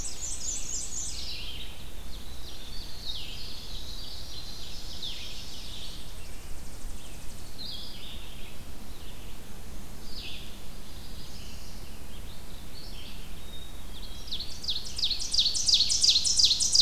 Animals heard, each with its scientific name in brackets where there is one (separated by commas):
Black-and-white Warbler (Mniotilta varia), Blue-headed Vireo (Vireo solitarius), Winter Wren (Troglodytes hiemalis), Tennessee Warbler (Leiothlypis peregrina), Ovenbird (Seiurus aurocapilla), Yellow Warbler (Setophaga petechia), Black-capped Chickadee (Poecile atricapillus), Red-eyed Vireo (Vireo olivaceus)